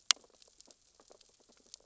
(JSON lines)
{"label": "biophony, sea urchins (Echinidae)", "recorder": "SoundTrap 600 or HydroMoth"}